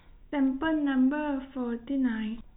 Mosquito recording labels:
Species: no mosquito; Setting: cup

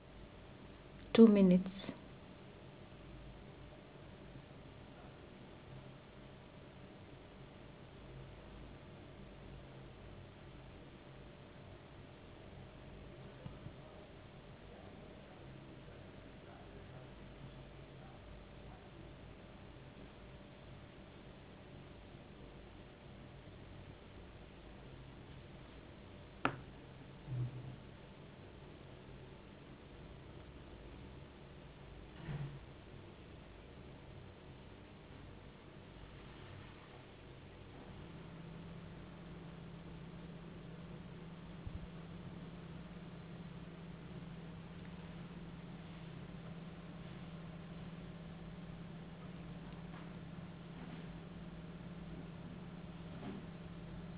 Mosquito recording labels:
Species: no mosquito; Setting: insect culture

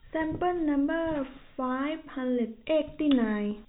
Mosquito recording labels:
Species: no mosquito; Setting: cup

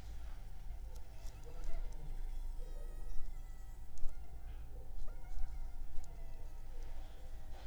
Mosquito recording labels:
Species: Anopheles funestus s.s.; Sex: female; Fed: unfed; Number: one; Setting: cup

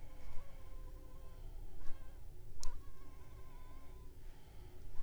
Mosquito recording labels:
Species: Anopheles funestus s.l.; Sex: female; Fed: unfed; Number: one; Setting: cup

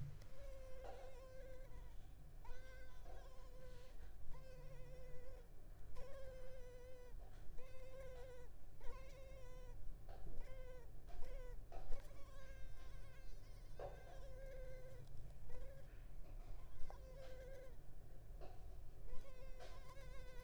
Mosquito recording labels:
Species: Culex pipiens complex; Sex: female; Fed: unfed; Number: one; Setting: cup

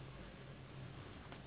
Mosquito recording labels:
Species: Anopheles gambiae s.s.; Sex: female; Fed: unfed; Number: one; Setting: insect culture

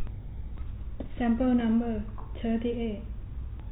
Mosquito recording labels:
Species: no mosquito; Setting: cup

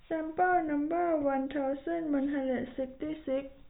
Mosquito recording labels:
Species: no mosquito; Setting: cup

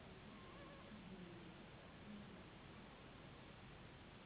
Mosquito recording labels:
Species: Anopheles gambiae s.s.; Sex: female; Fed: unfed; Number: one; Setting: insect culture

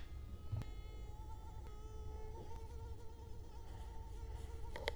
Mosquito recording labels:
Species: Culex quinquefasciatus; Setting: cup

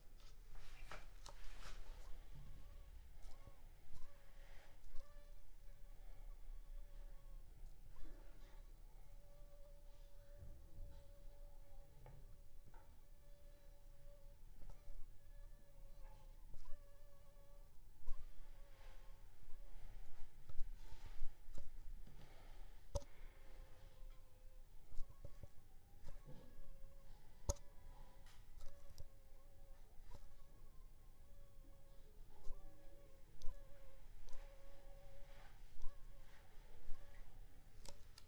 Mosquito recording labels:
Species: Anopheles funestus s.s.; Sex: female; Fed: unfed; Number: one; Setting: cup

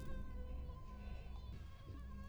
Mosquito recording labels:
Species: Anopheles stephensi; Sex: female; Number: one; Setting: cup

